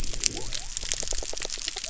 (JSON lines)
{"label": "biophony", "recorder": "SoundTrap 300"}